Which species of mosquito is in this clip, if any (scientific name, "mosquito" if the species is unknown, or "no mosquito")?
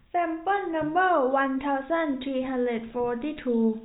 no mosquito